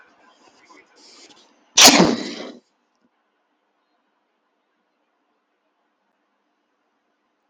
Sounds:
Sneeze